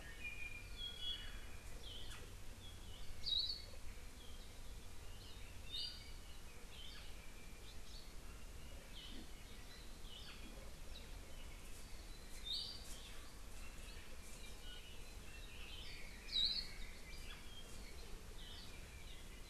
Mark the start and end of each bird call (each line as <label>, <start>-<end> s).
Iiwi (Drepanis coccinea), 0.0-1.5 s
Hawaii Akepa (Loxops coccineus), 3.2-3.6 s
Red-billed Leiothrix (Leiothrix lutea), 15.4-17.5 s
Hawaii Akepa (Loxops coccineus), 16.2-16.6 s